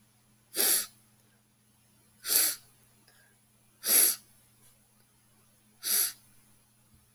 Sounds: Sniff